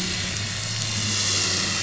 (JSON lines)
{"label": "anthrophony, boat engine", "recorder": "SoundTrap 500"}